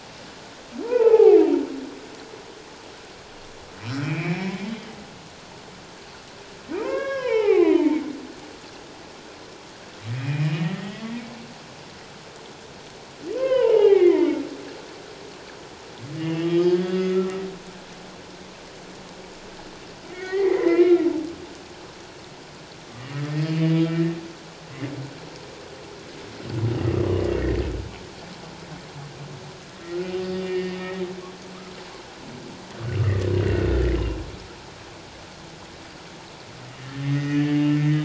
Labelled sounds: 0.8	1.5	humpback whale, 0.78 to 1.5 kHz
3.8	4.4	humpback whale, 2.1 to 5.6 kHz
6.8	8.0	humpback whale, 0.78 to 5.5 kHz
10.1	11.1	humpback whale, 1.8 to 3.4 kHz
13.3	14.4	humpback whale, 0.78 to 3.2 kHz
16.2	17.4	humpback whale, 1.2 to 5.2 kHz
20.1	21.0	humpback whale, 0.78 to 2.4 kHz
23.4	24.0	humpback whale, 1.3 to 3.0 kHz
29.7	30.8	humpback whale, 1.8 to 4.9 kHz
33.4	33.7	humpback whale, 2.6 to 2.8 kHz
36.8	38.0	humpback whale, 1.6 to 3.0 kHz

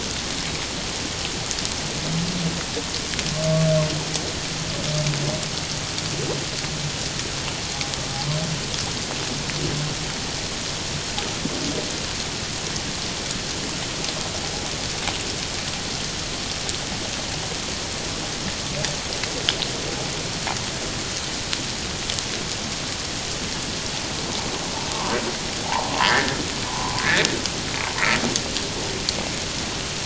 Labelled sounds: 26.0	27.2	humpback whale, 0.78 to 2.0 kHz

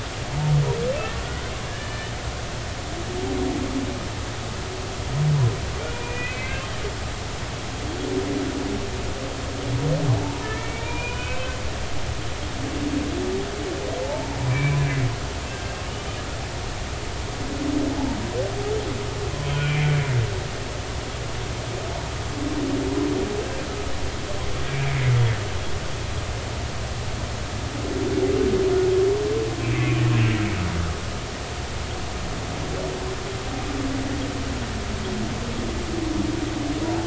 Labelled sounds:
1.6	2.1	humpback whale, 1.6 to 3.0 kHz
5.8	6.7	humpback whale, 1.9 to 2.8 kHz
10.4	11.6	humpback whale, 1.4 to 3.1 kHz
14.0	14.8	humpback whale, 0.83 to 2.5 kHz
15.5	16.2	humpback whale, 1.6 to 3.1 kHz
19.4	19.9	humpback whale, 2.2 to 3.3 kHz
24.7	25.0	humpback whale, 2.2 to 2.4 kHz
29.6	30.0	humpback whale, 2.2 to 2.7 kHz

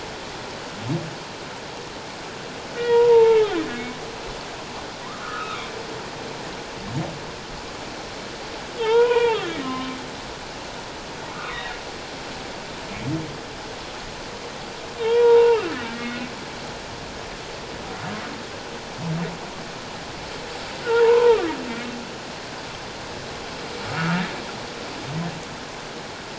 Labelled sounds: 2.8	3.6	humpback whale, 0.84 to 2.9 kHz
5.2	5.7	humpback whale, 1.1 to 2.7 kHz
8.8	10.0	humpback whale, 0.84 to 3.4 kHz
11.3	11.8	humpback whale, 1.1 to 3.8 kHz
15.0	16.3	humpback whale, 0.84 to 3.4 kHz
20.9	21.5	humpback whale, 0.84 to 1.5 kHz
23.9	24.2	humpback whale, 1.2 to 1.5 kHz

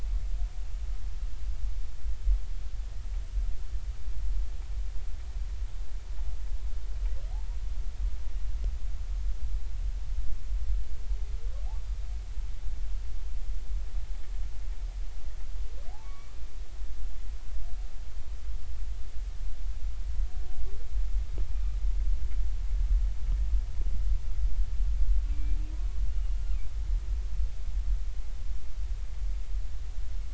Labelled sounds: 16.0	16.4	humpback whale, 1.0 to 2.3 kHz
25.3	25.6	humpback whale, 2.3 to 2.4 kHz

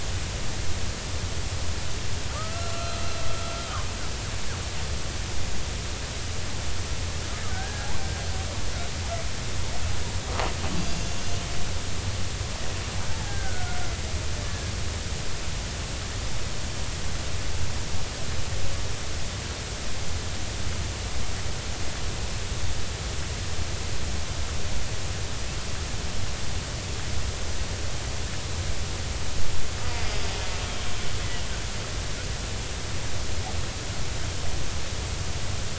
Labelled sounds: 2.3	3.0	killer whale, Bigg's (transient), 1.1 to 1.6 kHz
3.6	3.9	killer whale, Bigg's (transient), 3.0 to 3.2 kHz
7.5	7.9	killer whale, Bigg's (transient), 1.4 to 1.7 kHz
10.8	11.2	killer whale, Bigg's (transient), 2.6 to 6.9 kHz
13.1	13.8	killer whale, Bigg's (transient), 0.80 to 1.7 kHz
14.5	14.7	killer whale, Bigg's (transient), 1.6 to 1.8 kHz

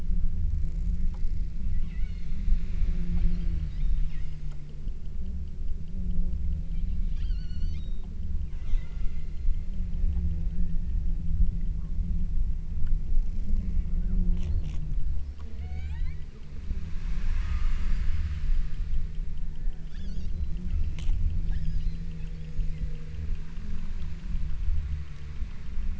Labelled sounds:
1.9	2.6	killer whale, southern Alaska resident, 1.2 to 4.9 kHz
3.3	4.7	killer whale, southern Alaska resident, 1.7 to 8.0 kHz
7.1	8.2	killer whale, southern Alaska resident, 0.87 to 8.0 kHz
8.5	10.0	killer whale, southern Alaska resident, 0.57 to 8.0 kHz
15.5	16.3	killer whale, southern Alaska resident, 0.28 to 8.0 kHz
17.4	18.0	killer whale, southern Alaska resident, 0.87 to 3.0 kHz
19.7	20.4	killer whale, southern Alaska resident, 0.62 to 7.5 kHz
21.5	22.2	killer whale, southern Alaska resident, 1.4 to 7.1 kHz
22.5	23.1	killer whale, southern Alaska resident, 1.9 to 6.9 kHz

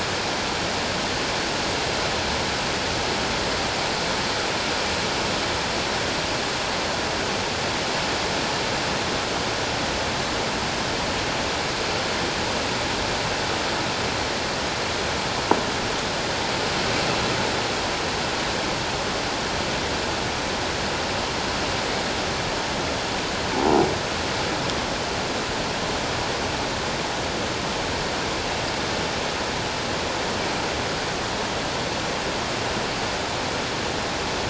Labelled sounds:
23.5	23.8	croaking sound likely from a nearby submerged object, 0.78 to 1.0 kHz

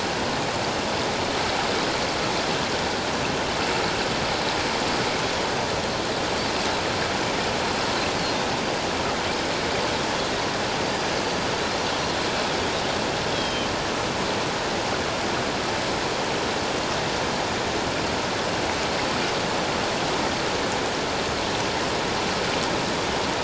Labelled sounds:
10.8	11.1	Pacific white-sided dolphin, 4.6 to 4.8 kHz
13.3	13.7	Pacific white-sided dolphin, 3.0 to 5.4 kHz

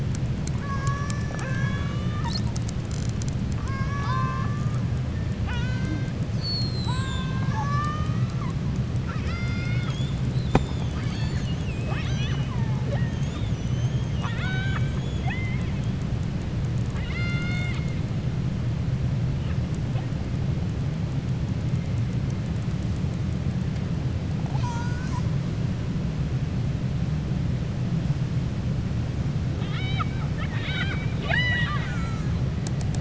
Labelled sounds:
8.9	10.2	killer whale, 1.3 to 7.9 kHz
13.1	15.7	killer whale, 0.76 to 7.6 kHz
16.8	18.0	killer whale, 1.1 to 7.9 kHz

